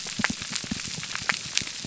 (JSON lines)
{"label": "biophony, pulse", "recorder": "SoundTrap 300"}